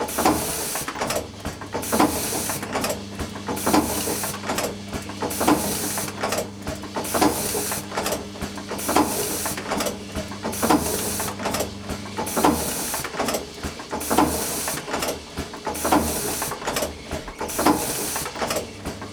Does the copy machine ever stop printing?
no